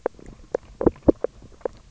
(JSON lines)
{"label": "biophony, knock croak", "recorder": "SoundTrap 300"}